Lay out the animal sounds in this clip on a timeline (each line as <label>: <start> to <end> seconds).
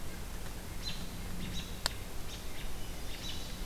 American Robin (Turdus migratorius): 0.8 to 1.1 seconds
American Robin (Turdus migratorius): 1.5 to 1.7 seconds
American Robin (Turdus migratorius): 2.2 to 2.4 seconds
Chestnut-sided Warbler (Setophaga pensylvanica): 2.6 to 3.7 seconds
American Robin (Turdus migratorius): 3.2 to 3.3 seconds